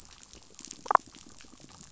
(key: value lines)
label: biophony, damselfish
recorder: SoundTrap 500

label: biophony
recorder: SoundTrap 500